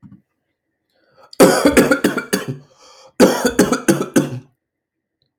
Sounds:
Cough